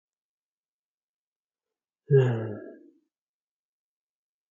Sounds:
Sigh